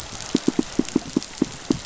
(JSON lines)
{"label": "biophony, pulse", "recorder": "SoundTrap 500"}